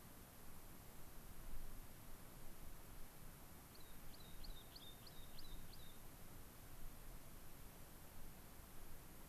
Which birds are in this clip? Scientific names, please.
Anthus rubescens